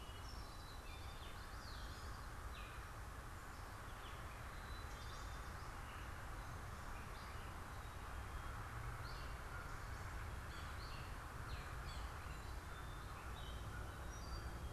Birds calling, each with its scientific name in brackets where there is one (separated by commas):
American Crow (Corvus brachyrhynchos), Common Yellowthroat (Geothlypis trichas), Yellow-bellied Sapsucker (Sphyrapicus varius), Gray Catbird (Dumetella carolinensis)